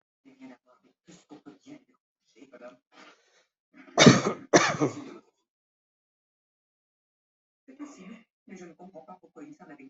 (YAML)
expert_labels:
- quality: good
  cough_type: dry
  dyspnea: false
  wheezing: false
  stridor: false
  choking: false
  congestion: false
  nothing: true
  diagnosis: healthy cough
  severity: pseudocough/healthy cough
age: 41
gender: male
respiratory_condition: false
fever_muscle_pain: false
status: COVID-19